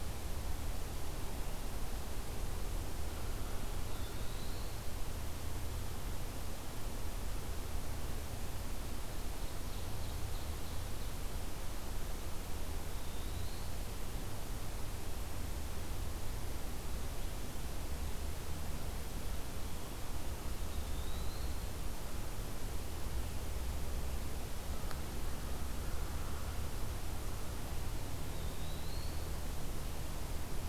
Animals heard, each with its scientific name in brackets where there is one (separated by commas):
Eastern Wood-Pewee (Contopus virens), Ovenbird (Seiurus aurocapilla)